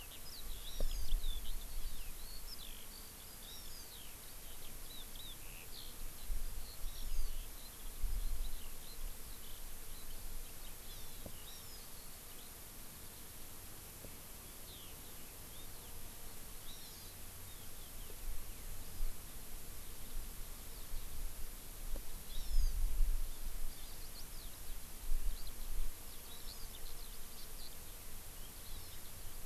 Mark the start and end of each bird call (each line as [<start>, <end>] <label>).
[0.00, 12.57] Eurasian Skylark (Alauda arvensis)
[0.57, 1.17] Hawaii Amakihi (Chlorodrepanis virens)
[3.37, 3.87] Hawaii Amakihi (Chlorodrepanis virens)
[6.87, 7.37] Hawaii Amakihi (Chlorodrepanis virens)
[10.77, 11.87] Hawaii Amakihi (Chlorodrepanis virens)
[14.57, 15.37] Eurasian Skylark (Alauda arvensis)
[16.57, 17.27] Hawaii Amakihi (Chlorodrepanis virens)
[18.77, 19.17] Hawaii Amakihi (Chlorodrepanis virens)
[22.27, 22.77] Hawaii Amakihi (Chlorodrepanis virens)
[23.67, 23.97] Hawaii Amakihi (Chlorodrepanis virens)
[24.07, 24.57] Eurasian Skylark (Alauda arvensis)
[25.27, 25.57] Eurasian Skylark (Alauda arvensis)
[26.07, 27.87] Eurasian Skylark (Alauda arvensis)
[26.27, 26.77] Hawaii Amakihi (Chlorodrepanis virens)
[28.57, 29.07] Hawaii Amakihi (Chlorodrepanis virens)